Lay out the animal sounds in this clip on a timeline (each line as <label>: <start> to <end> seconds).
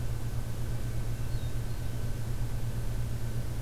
Hermit Thrush (Catharus guttatus): 0.9 to 2.0 seconds